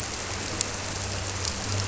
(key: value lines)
label: anthrophony, boat engine
recorder: SoundTrap 300